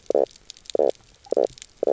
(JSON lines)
{"label": "biophony, knock croak", "recorder": "SoundTrap 300"}